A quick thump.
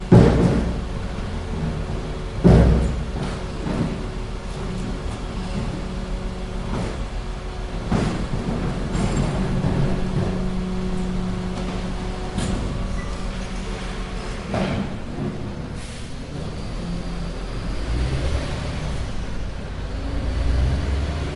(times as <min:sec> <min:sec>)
0:00.1 0:00.8, 0:02.2 0:03.0